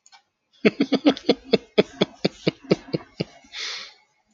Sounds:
Laughter